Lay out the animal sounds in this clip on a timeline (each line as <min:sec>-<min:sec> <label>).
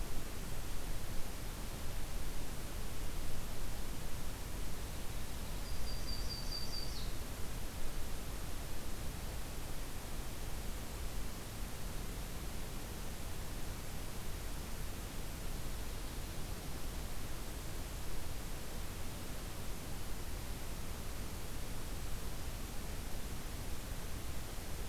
0:05.3-0:07.4 Yellow-rumped Warbler (Setophaga coronata)